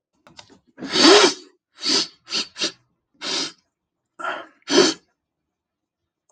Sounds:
Sniff